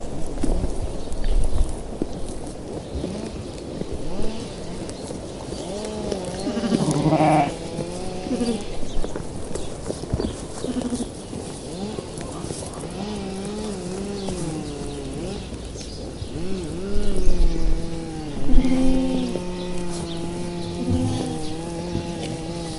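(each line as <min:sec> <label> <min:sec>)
0:00.0 A chainsaw is running in the distance. 0:00.9
0:00.0 A bird chirps in the distance. 0:22.8
0:00.0 Sheep chewing and eating straw. 0:22.8
0:02.7 A chainsaw is running in the distance. 0:08.9
0:06.3 Sheep are baaing. 0:07.5
0:08.2 A sheep is baaing. 0:08.7
0:10.5 A sheep is baaing. 0:11.1
0:11.5 A chainsaw is running in the distance. 0:22.8
0:18.3 A sheep is baaing. 0:19.4
0:20.8 Sheep are baaing. 0:21.5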